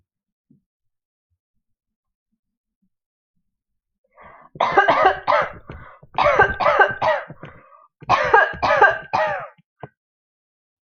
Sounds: Cough